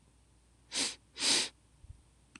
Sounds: Sniff